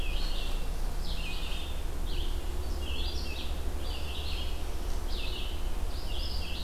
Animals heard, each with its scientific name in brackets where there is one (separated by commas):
Red-eyed Vireo (Vireo olivaceus), Northern Parula (Setophaga americana)